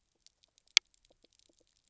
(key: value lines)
label: biophony, pulse
recorder: SoundTrap 300